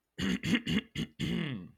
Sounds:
Throat clearing